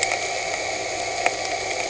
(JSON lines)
{"label": "anthrophony, boat engine", "recorder": "HydroMoth"}